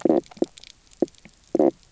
{"label": "biophony, knock croak", "recorder": "SoundTrap 300"}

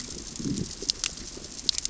{"label": "biophony, growl", "recorder": "SoundTrap 600 or HydroMoth"}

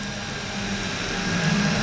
{"label": "anthrophony, boat engine", "recorder": "SoundTrap 500"}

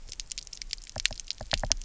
{"label": "biophony, knock", "recorder": "SoundTrap 300"}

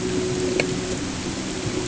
{"label": "anthrophony, boat engine", "recorder": "HydroMoth"}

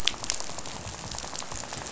{"label": "biophony, rattle", "recorder": "SoundTrap 500"}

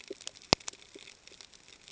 {"label": "ambient", "recorder": "HydroMoth"}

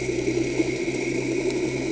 {"label": "anthrophony, boat engine", "recorder": "HydroMoth"}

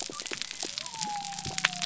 {"label": "biophony", "recorder": "SoundTrap 300"}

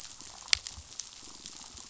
{"label": "biophony", "recorder": "SoundTrap 500"}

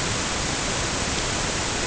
{"label": "ambient", "recorder": "HydroMoth"}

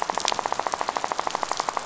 {"label": "biophony, rattle", "recorder": "SoundTrap 500"}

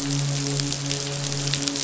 {"label": "biophony, midshipman", "recorder": "SoundTrap 500"}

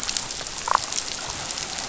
{"label": "biophony, damselfish", "recorder": "SoundTrap 500"}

